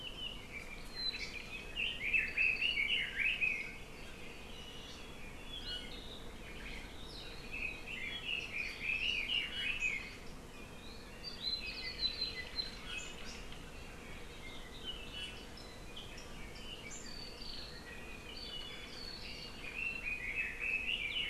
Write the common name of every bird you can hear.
Apapane, Hawaii Amakihi, Red-billed Leiothrix, Iiwi, Omao, Hawaii Akepa